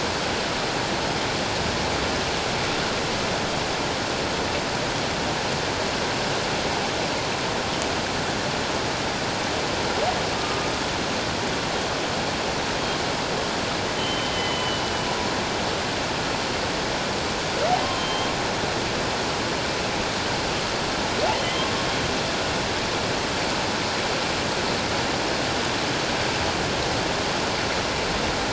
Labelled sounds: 10.3	10.7	humpback whale, 1.16 to 1.25 kHz
14.0	15.1	humpback whale, 2.9 to 3.2 kHz
17.8	18.3	humpback whale, 3.1 to 3.2 kHz
21.4	21.7	humpback whale, 3.0 to 3.2 kHz

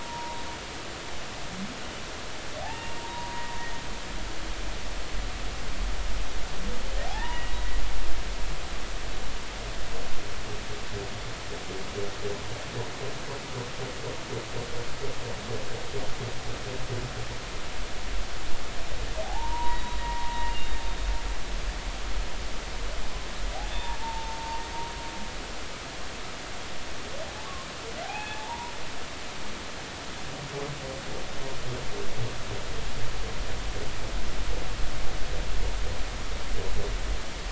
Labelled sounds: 2.6	3.5	humpback whale, 0.80 to 2.8 kHz
7.1	7.5	humpback whale, 0.80 to 2.9 kHz
19.2	20.7	humpback whale, 0.80 to 3.9 kHz
23.8	24.6	humpback whale, 0.83 to 1.1 kHz
28.0	28.7	humpback whale, 0.80 to 2.6 kHz

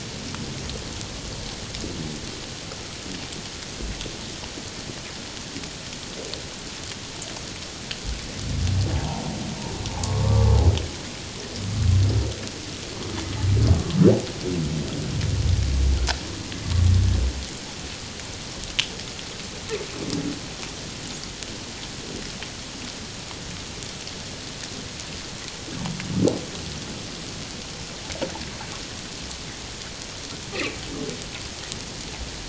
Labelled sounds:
8.9	9.3	humpback whale, 0.78 to 1.0 kHz
10.0	10.6	humpback whale, 1.0 to 1.2 kHz

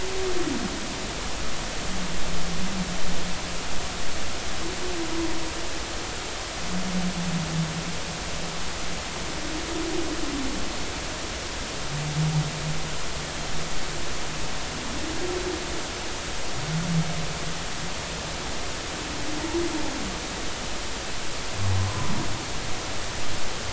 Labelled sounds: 21.8	22.1	humpback whale, 0.96 to 1.1 kHz

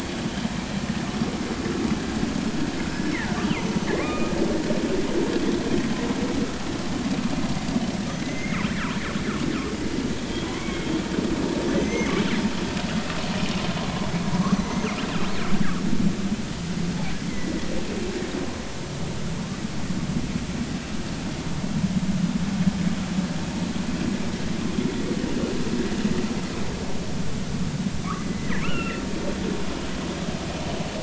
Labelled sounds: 1.1	1.4	vessel noise, 1.1 to 1.4 kHz
2.8	3.0	killer whale, northern resident, G clan, GG subclan, call N29, 5.1 to 5.2 kHz
3.9	4.3	killer whale, northern resident, G clan, call N23i, 1.0 to 2.5 kHz
8.2	8.7	killer whale, northern resident, G clan, GG subclan, call N29, 1.9 to 6.6 kHz
10.5	10.9	killer whale, northern resident, G clan, call N23i, 2.0 to 2.3 kHz
11.7	12.1	killer whale, northern resident, G clan, GG subclan, call N28, 1.8 to 6.3 kHz
14.4	14.9	killer whale, northern resident, G clan, GG subclan, call N29, 0.99 to 6.1 kHz
17.3	17.5	killer whale, northern resident, G clan, 1.9 to 2.2 kHz
28.3	29.0	killer whale, northern resident, G clan, call N23i, 1.2 to 3.0 kHz

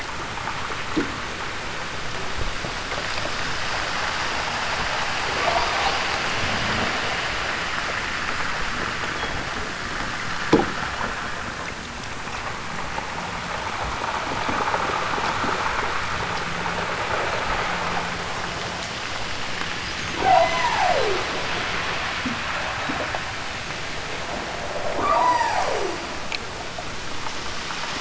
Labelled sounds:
5.3	5.9	killer whale, southern Alaska resident, 7.1 to 8.0 kHz
20.2	21.3	killer whale, southern Alaska resident, 0.23 to 8.0 kHz
24.9	26.2	killer whale, southern Alaska resident, 0.18 to 8.0 kHz

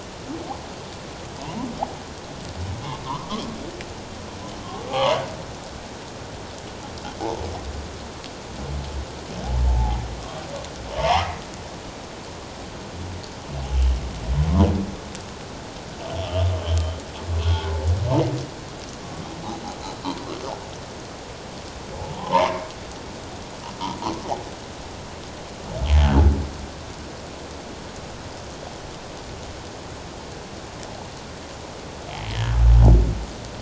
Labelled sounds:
4.9	5.2	humpback whale, 0.78 to 3.4 kHz
9.6	10.0	humpback whale, 0.78 to 0.97 kHz
11.0	11.3	humpback whale, 0.78 to 2.2 kHz
16.2	16.5	humpback whale, 2.6 to 3.6 kHz
17.4	17.7	humpback whale, 1.4 to 1.5 kHz
22.0	22.6	humpback whale, 0.78 to 1.2 kHz

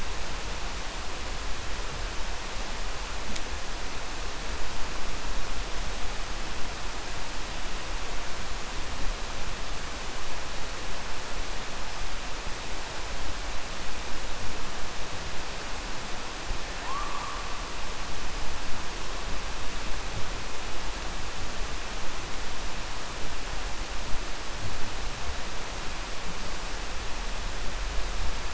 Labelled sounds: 16.7	17.4	killer whale, 0.71 to 1.8 kHz

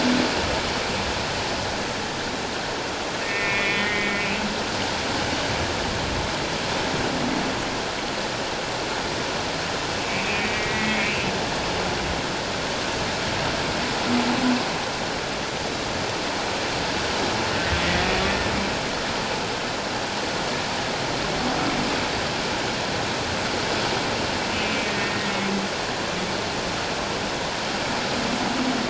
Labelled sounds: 3.2	4.3	humpback whale, 1.8 to 3.5 kHz
10.1	11.2	humpback whale, 1.8 to 2.7 kHz
24.5	25.3	humpback whale, 1.8 to 2.6 kHz

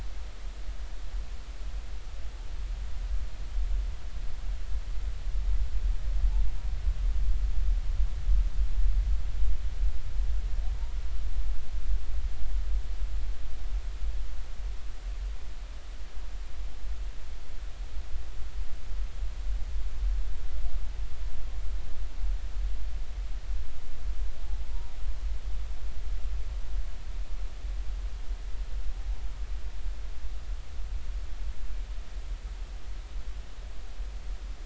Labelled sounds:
24.7	25.0	humpback whale, 0.90 to 0.99 kHz

